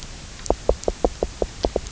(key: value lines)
label: biophony, knock croak
recorder: SoundTrap 300